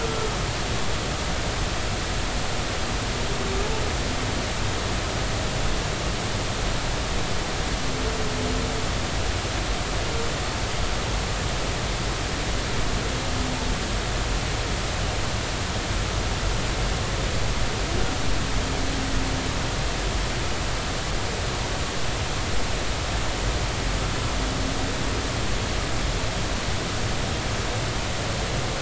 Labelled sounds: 0.0	0.3	humpback whale, 1.3 to 1.5 kHz

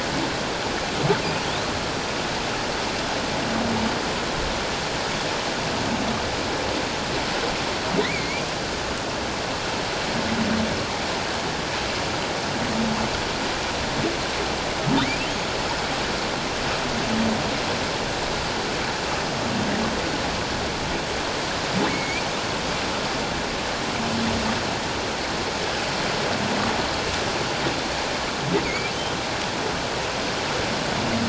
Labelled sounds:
8.0	8.5	humpback whale, 1.8 to 2.5 kHz
15.0	15.3	humpback whale, 1.8 to 2.8 kHz
21.9	22.2	humpback whale, 2.1 to 2.5 kHz
28.6	28.9	humpback whale, 2.0 to 2.4 kHz

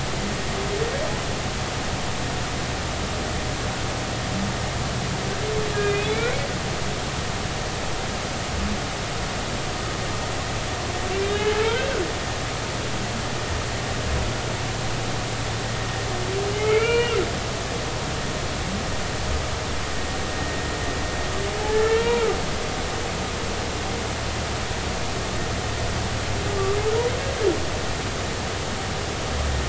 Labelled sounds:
5.7	6.3	humpback whale, 1.6 to 2.6 kHz
11.3	12.0	humpback whale, 1.3 to 3.0 kHz
16.5	17.2	humpback whale, 1.3 to 3.1 kHz
21.7	22.2	humpback whale, 0.90 to 2.9 kHz
23.0	23.3	humpback whale, 2.2 to 2.4 kHz

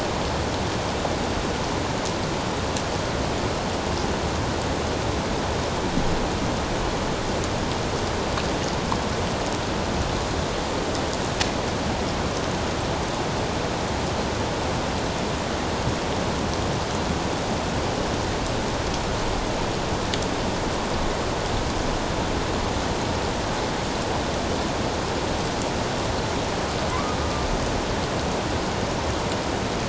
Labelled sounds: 26.9	27.2	humpback whale, 0.94 to 1.3 kHz

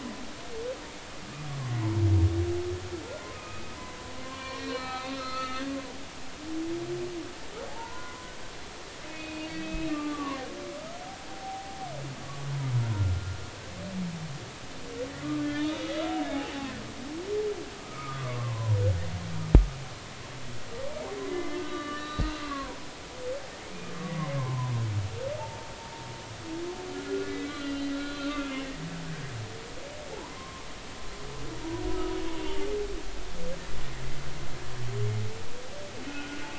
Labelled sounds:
3.3	3.7	humpback whale, 1.2 to 2.6 kHz
4.2	5.6	humpback whale, 0.96 to 5.7 kHz
7.7	8.3	humpback whale, 0.80 to 1.5 kHz
9.1	11.8	humpback whale, 0.80 to 2.6 kHz
12.2	12.5	humpback whale, 1.1 to 1.2 kHz
15.2	16.2	humpback whale, 1.1 to 3.9 kHz
17.8	18.8	humpback whale, 0.90 to 1.4 kHz
21.3	22.8	humpback whale, 0.90 to 4.0 kHz
24.4	24.7	humpback whale, 0.86 to 1.1 kHz
25.4	25.7	humpback whale, 0.83 to 0.96 kHz
26.9	28.5	humpback whale, 1.3 to 4.1 kHz
30.1	30.7	humpback whale, 0.80 to 1.2 kHz
36.1	36.5	humpback whale, 1.4 to 1.5 kHz

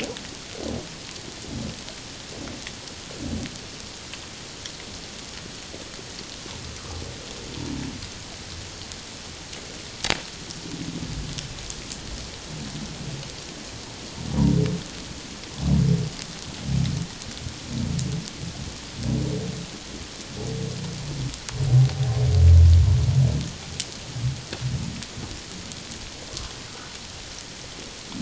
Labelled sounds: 26.7	27.0	humpback whale, 1.2 to 1.5 kHz

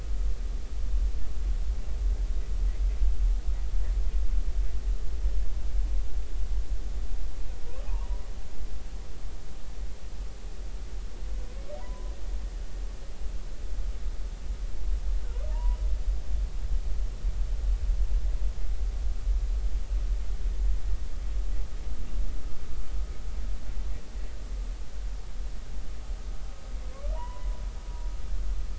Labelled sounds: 7.9	8.3	humpback whale, 0.86 to 1.2 kHz
11.8	12.1	humpback whale, 0.90 to 1.1 kHz
15.5	15.8	humpback whale, 0.86 to 1.0 kHz
26.9	27.6	humpback whale, 0.86 to 2.0 kHz

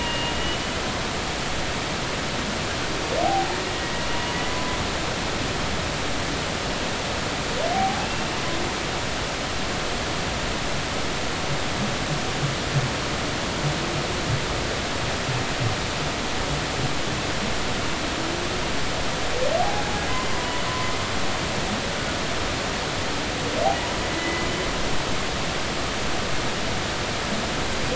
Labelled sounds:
1.0	1.3	humpback whale, 2.8 to 2.9 kHz
3.2	3.6	humpback whale, 0.80 to 0.96 kHz
7.7	8.1	humpback whale, 0.80 to 0.86 kHz
9.0	9.2	humpback whale, 2.6 to 2.8 kHz
19.6	20.6	humpback whale, 0.80 to 2.1 kHz
24.2	24.5	humpback whale, 1.95 to 2.05 kHz

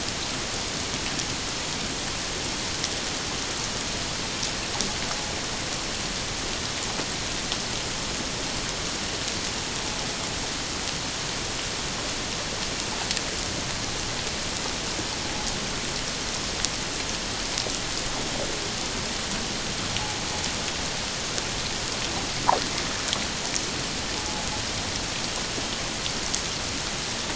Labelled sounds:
24.2	24.5	invertebrate grinding on or near the hydrophone, 0.81 to 0.91 kHz

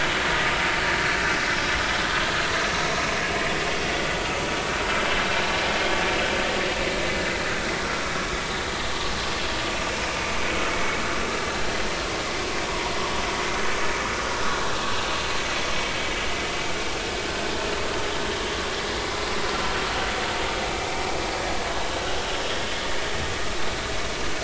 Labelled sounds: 19.5	19.8	vessel noise, 1.3 to 1.4 kHz

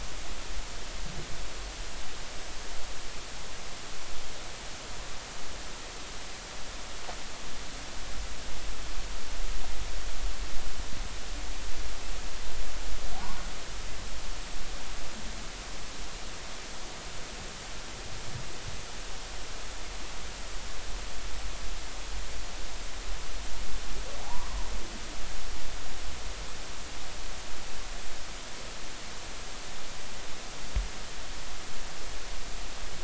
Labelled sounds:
24.2	24.6	humpback whale, 0.80 to 1.2 kHz

